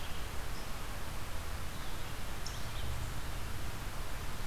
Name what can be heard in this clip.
unknown mammal, Red-eyed Vireo